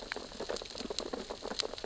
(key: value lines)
label: biophony, sea urchins (Echinidae)
recorder: SoundTrap 600 or HydroMoth